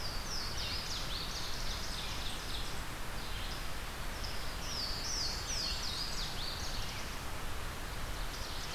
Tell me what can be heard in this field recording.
Louisiana Waterthrush, Red-eyed Vireo, Ovenbird, Blackburnian Warbler